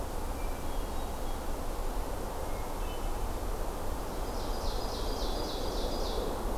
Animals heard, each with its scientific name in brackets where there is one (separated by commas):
Hermit Thrush (Catharus guttatus), Ovenbird (Seiurus aurocapilla)